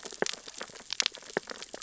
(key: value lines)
label: biophony, sea urchins (Echinidae)
recorder: SoundTrap 600 or HydroMoth